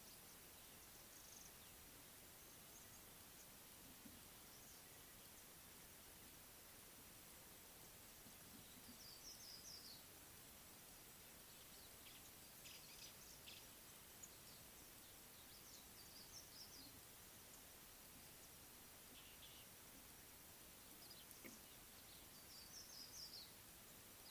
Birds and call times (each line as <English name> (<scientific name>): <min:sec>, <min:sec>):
Yellow-bellied Eremomela (Eremomela icteropygialis): 0:09.4, 0:16.4, 0:22.9